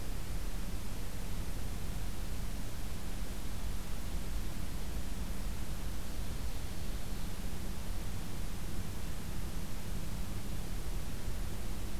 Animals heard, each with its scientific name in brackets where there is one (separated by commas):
Ovenbird (Seiurus aurocapilla)